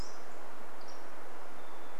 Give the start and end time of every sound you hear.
[0, 2] Hermit Thrush song
[0, 2] Pacific-slope Flycatcher song

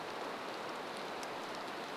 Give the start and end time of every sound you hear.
[0, 2] rain

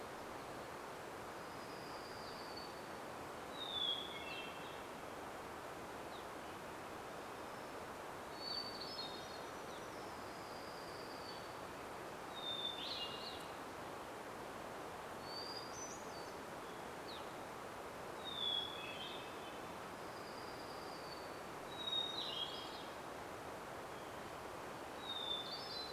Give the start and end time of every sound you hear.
[0, 4] warbler song
[2, 6] Hermit Thrush song
[4, 10] Evening Grosbeak call
[6, 8] Red-breasted Nuthatch song
[8, 10] Hermit Thrush song
[8, 10] Hermit Warbler song
[8, 12] warbler song
[10, 14] Red-breasted Nuthatch song
[12, 16] Hermit Thrush song
[16, 18] Evening Grosbeak call
[16, 18] warbler song
[18, 26] Hermit Thrush song
[20, 22] warbler song
[22, 24] Evening Grosbeak call

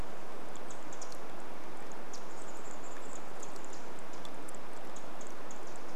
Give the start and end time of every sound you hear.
[0, 6] Pacific Wren call
[2, 4] Chestnut-backed Chickadee call

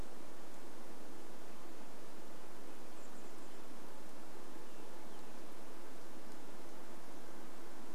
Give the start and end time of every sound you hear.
[0, 4] Red-breasted Nuthatch song
[0, 8] insect buzz
[2, 4] Chestnut-backed Chickadee call
[4, 6] Say's Phoebe song

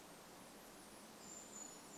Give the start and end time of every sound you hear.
[0, 2] Brown Creeper call
[0, 2] unidentified bird chip note

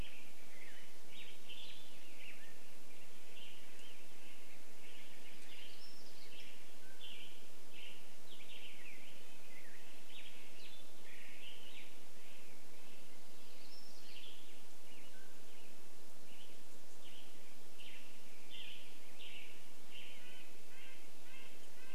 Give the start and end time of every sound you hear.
[0, 2] Western Tanager call
[0, 4] Black-headed Grosbeak song
[0, 8] Western Tanager song
[4, 8] unidentified sound
[6, 8] Mountain Quail call
[8, 14] Red-breasted Nuthatch song
[8, 16] Black-headed Grosbeak song
[12, 14] Steller's Jay call
[14, 16] Mountain Quail call
[14, 16] Western Tanager call
[16, 22] Western Tanager song
[18, 20] Black-headed Grosbeak song
[20, 22] Red-breasted Nuthatch song

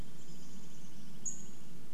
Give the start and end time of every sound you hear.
[0, 2] Chestnut-backed Chickadee call
[0, 2] Douglas squirrel rattle
[0, 2] Pacific-slope Flycatcher call
[0, 2] insect buzz

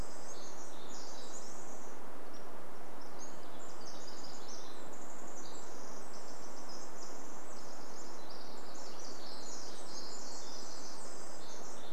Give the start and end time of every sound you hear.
[0, 4] Pacific-slope Flycatcher song
[0, 12] Pacific Wren song
[2, 4] Varied Thrush song

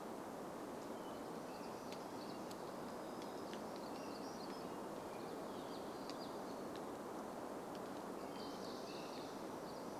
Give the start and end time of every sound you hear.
[0, 6] American Robin song
[2, 4] Hammond's Flycatcher song
[2, 6] warbler song
[4, 6] Hermit Thrush song
[6, 8] Hammond's Flycatcher call
[8, 10] American Robin song
[8, 10] unidentified sound

